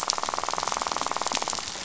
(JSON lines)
{"label": "biophony, rattle", "recorder": "SoundTrap 500"}